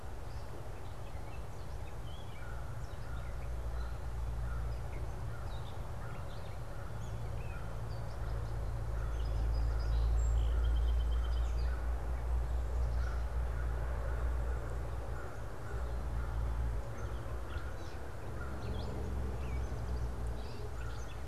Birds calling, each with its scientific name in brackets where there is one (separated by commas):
American Crow (Corvus brachyrhynchos), Song Sparrow (Melospiza melodia), Gray Catbird (Dumetella carolinensis)